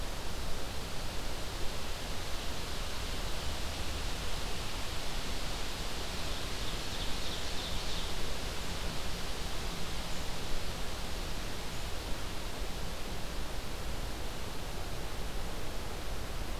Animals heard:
Ovenbird (Seiurus aurocapilla), Red-eyed Vireo (Vireo olivaceus)

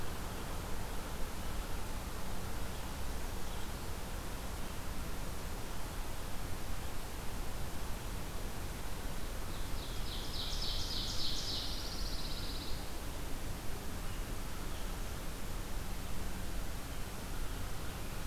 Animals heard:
Pine Warbler (Setophaga pinus), Ovenbird (Seiurus aurocapilla)

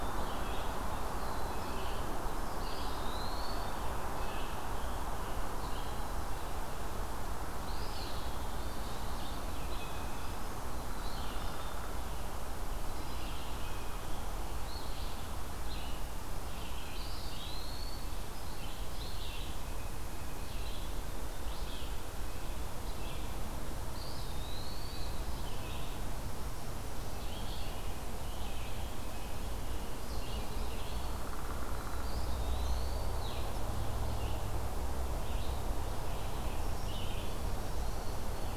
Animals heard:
Downy Woodpecker (Dryobates pubescens), Black-throated Green Warbler (Setophaga virens), Blue Jay (Cyanocitta cristata), Scarlet Tanager (Piranga olivacea), Red-eyed Vireo (Vireo olivaceus), Eastern Phoebe (Sayornis phoebe), Black-capped Chickadee (Poecile atricapillus), Eastern Wood-Pewee (Contopus virens)

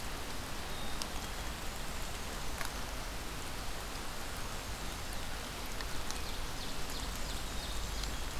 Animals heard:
Black-and-white Warbler (Mniotilta varia), Black-capped Chickadee (Poecile atricapillus), Ovenbird (Seiurus aurocapilla)

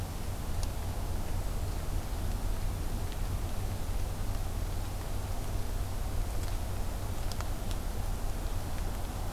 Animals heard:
Hermit Thrush (Catharus guttatus)

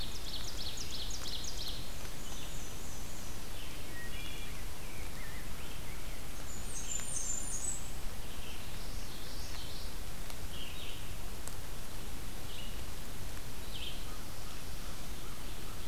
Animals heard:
Wood Thrush (Hylocichla mustelina), American Crow (Corvus brachyrhynchos), Ovenbird (Seiurus aurocapilla), Common Yellowthroat (Geothlypis trichas), Black-and-white Warbler (Mniotilta varia), Red-eyed Vireo (Vireo olivaceus), Rose-breasted Grosbeak (Pheucticus ludovicianus), Blackburnian Warbler (Setophaga fusca)

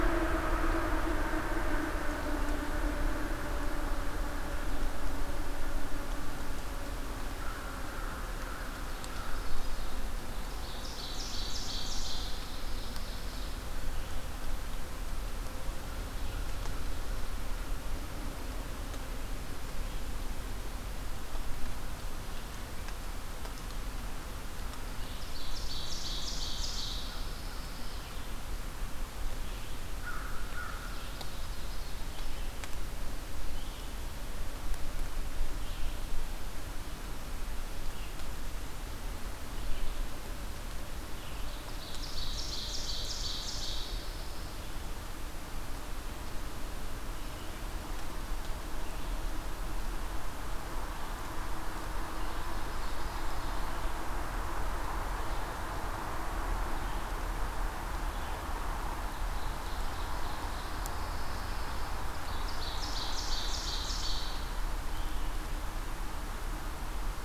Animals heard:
Ovenbird (Seiurus aurocapilla), Red-eyed Vireo (Vireo olivaceus), American Crow (Corvus brachyrhynchos), Pine Warbler (Setophaga pinus)

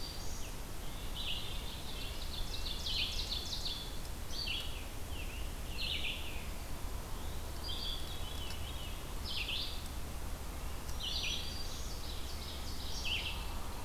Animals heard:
Red-breasted Nuthatch (Sitta canadensis), Red-eyed Vireo (Vireo olivaceus), Black-throated Green Warbler (Setophaga virens), Ovenbird (Seiurus aurocapilla), Veery (Catharus fuscescens)

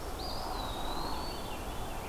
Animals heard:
Eastern Wood-Pewee (Contopus virens), Veery (Catharus fuscescens)

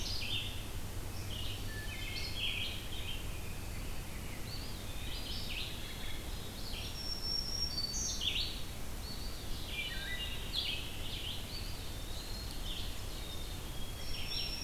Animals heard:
Red-eyed Vireo (Vireo olivaceus), Black-capped Chickadee (Poecile atricapillus), Eastern Wood-Pewee (Contopus virens), Rose-breasted Grosbeak (Pheucticus ludovicianus), Ovenbird (Seiurus aurocapilla), Black-throated Green Warbler (Setophaga virens), Wood Thrush (Hylocichla mustelina)

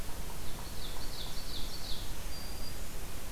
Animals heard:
Ovenbird (Seiurus aurocapilla), Black-capped Chickadee (Poecile atricapillus)

